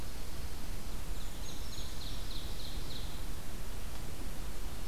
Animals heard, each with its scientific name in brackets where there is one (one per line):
Brown Creeper (Certhia americana)
Ovenbird (Seiurus aurocapilla)